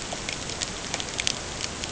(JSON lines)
{"label": "ambient", "recorder": "HydroMoth"}